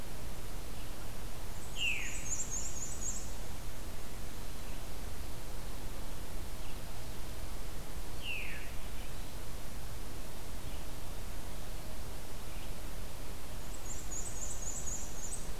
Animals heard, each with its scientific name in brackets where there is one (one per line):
Veery (Catharus fuscescens)
Black-and-white Warbler (Mniotilta varia)